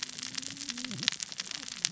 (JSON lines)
{"label": "biophony, cascading saw", "recorder": "SoundTrap 600 or HydroMoth"}